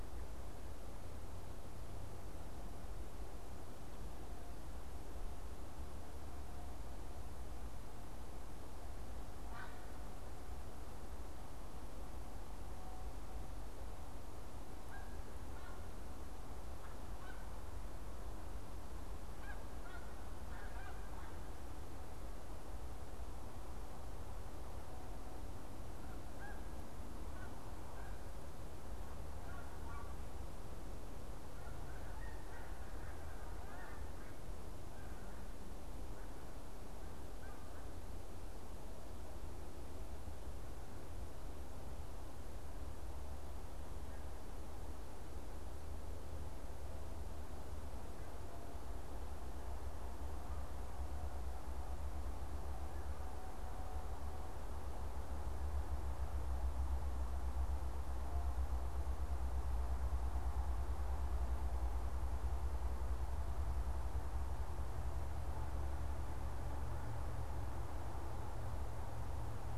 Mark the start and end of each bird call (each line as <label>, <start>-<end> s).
Snow Goose (Anser caerulescens), 9.2-38.0 s